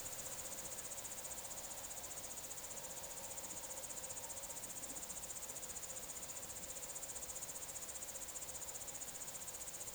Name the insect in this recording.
Tettigonia cantans, an orthopteran